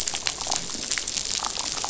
{"label": "biophony, damselfish", "recorder": "SoundTrap 500"}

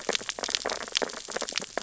{"label": "biophony, sea urchins (Echinidae)", "recorder": "SoundTrap 600 or HydroMoth"}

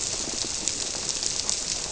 {"label": "biophony", "recorder": "SoundTrap 300"}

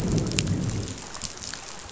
{"label": "biophony, growl", "recorder": "SoundTrap 500"}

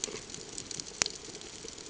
{"label": "ambient", "recorder": "HydroMoth"}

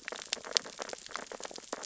{"label": "biophony, sea urchins (Echinidae)", "recorder": "SoundTrap 600 or HydroMoth"}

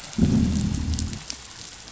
{"label": "biophony, growl", "recorder": "SoundTrap 500"}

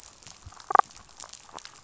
{"label": "biophony, damselfish", "recorder": "SoundTrap 500"}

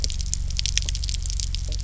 {"label": "anthrophony, boat engine", "recorder": "SoundTrap 300"}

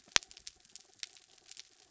{"label": "anthrophony, mechanical", "recorder": "SoundTrap 300"}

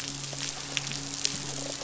{"label": "biophony, midshipman", "recorder": "SoundTrap 500"}
{"label": "biophony", "recorder": "SoundTrap 500"}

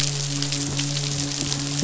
{"label": "biophony, midshipman", "recorder": "SoundTrap 500"}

